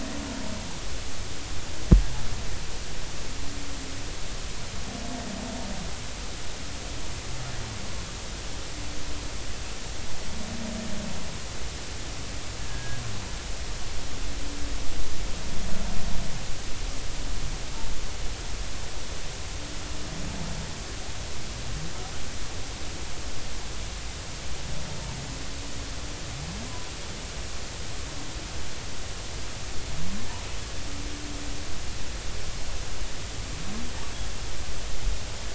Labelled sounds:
12.7	13.0	humpback whale, 1.6 to 1.7 kHz

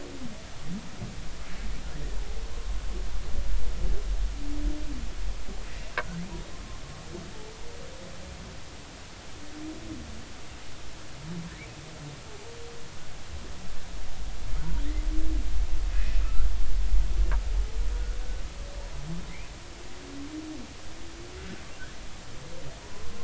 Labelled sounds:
6.5	6.8	humpback whale, 0.99 to 1.1 kHz
15.9	16.5	humpback whale, 1.2 to 2.6 kHz
17.9	18.2	humpback whale, 1.3 to 1.5 kHz
22.9	23.2	humpback whale, 0.96 to 1.1 kHz

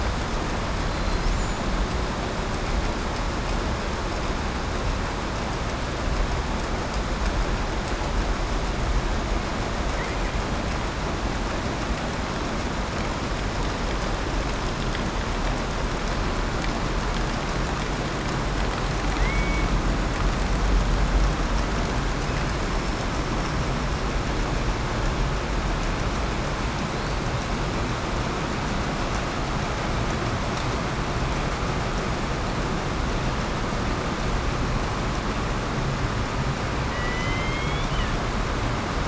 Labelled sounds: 19.0	19.7	killer whale, southern resident, 1.8 to 2.6 kHz
36.8	38.1	killer whale, southern resident, 1.8 to 3.6 kHz

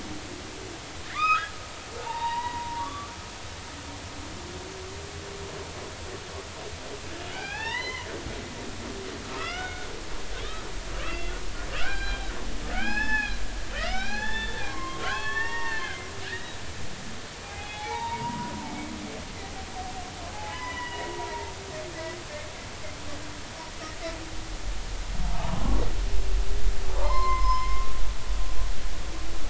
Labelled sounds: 1.1	1.5	humpback whale, 0.99 to 5.2 kHz
2.0	3.6	humpback whale, 0.83 to 3.9 kHz
7.2	8.1	humpback whale, 0.80 to 6.2 kHz
9.3	9.9	humpback whale, 1.2 to 3.7 kHz
11.0	12.3	humpback whale, 0.80 to 4.1 kHz
12.7	16.6	humpback whale, 0.80 to 6.1 kHz
17.4	18.5	humpback whale, 0.80 to 3.5 kHz
20.3	21.5	humpback whale, 0.80 to 3.0 kHz
25.5	25.8	humpback whale, 0.99 to 1.2 kHz
26.9	27.9	humpback whale, 0.83 to 5.3 kHz

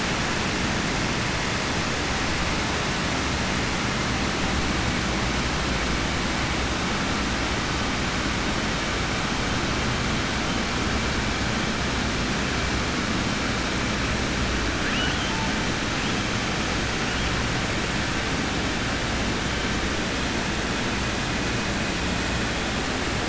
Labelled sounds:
14.8	15.3	killer whale, southern resident, 1.7 to 3.5 kHz

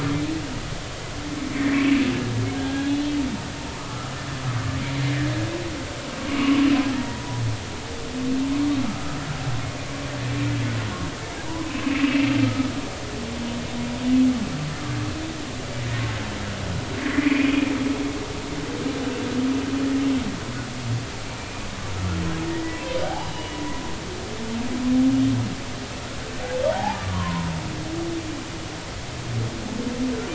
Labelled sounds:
2.5	3.1	humpback whale, 1.5 to 3.5 kHz
3.8	4.1	humpback whale, 0.99 to 1.4 kHz
6.3	6.5	humpback whale, 2.8 to 2.9 kHz
6.9	7.4	humpback whale, 0.80 to 2.0 kHz
11.8	12.7	humpback whale, 1.2 to 2.7 kHz
17.0	17.5	humpback whale, 1.8 to 2.6 kHz
21.4	21.7	humpback whale, 2.3 to 2.5 kHz
22.5	23.6	humpback whale, 0.96 to 3.0 kHz
26.6	27.5	humpback whale, 0.80 to 1.2 kHz

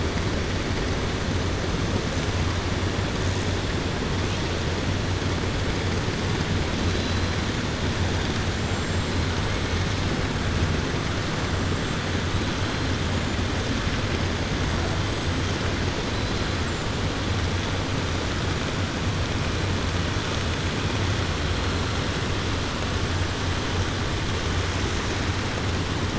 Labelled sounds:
8.5	9.1	killer whale, 7.1 to 8.0 kHz

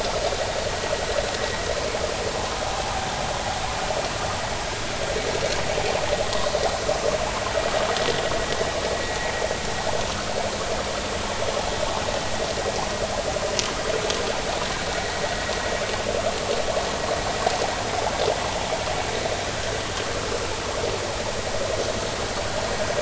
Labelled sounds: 3.7	3.9	vessel noise, 0.80 to 0.90 kHz

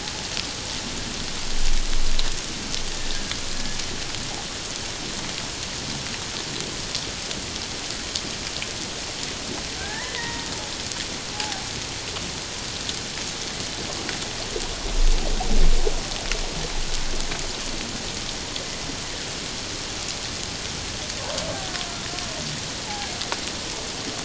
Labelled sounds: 9.8	10.5	killer whale, Bigg's (transient), 0.78 to 2.1 kHz
11.3	11.6	killer whale, Bigg's (transient), 0.78 to 0.91 kHz

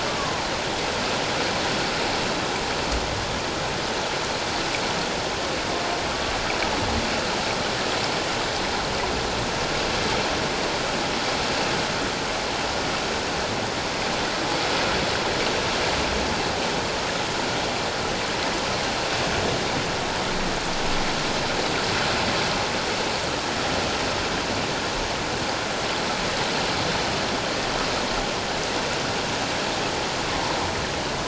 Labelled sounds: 0.1	0.5	humpback whale, 0.78 to 1.2 kHz

